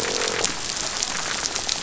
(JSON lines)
{"label": "biophony, croak", "recorder": "SoundTrap 500"}
{"label": "biophony", "recorder": "SoundTrap 500"}